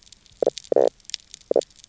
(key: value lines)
label: biophony, knock croak
recorder: SoundTrap 300